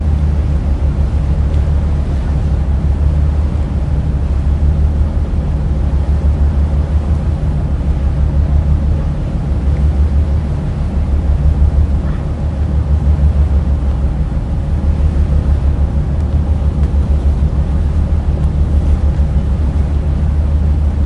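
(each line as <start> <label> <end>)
0.0 A sea vehicle engine runs loudly and continuously. 21.1
0.0 Water splashing quietly in the background. 21.1
0.0 Wind blowing outdoors. 21.1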